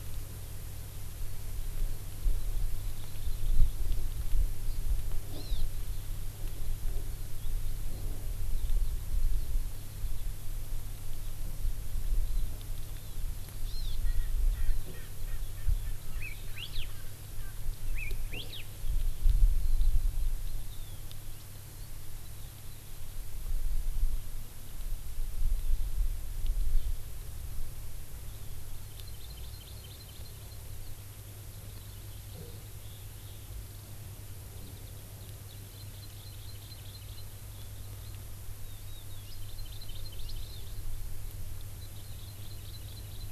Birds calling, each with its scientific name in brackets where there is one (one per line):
Hawaii Amakihi (Chlorodrepanis virens)
Erckel's Francolin (Pternistis erckelii)
Hawaii Elepaio (Chasiempis sandwichensis)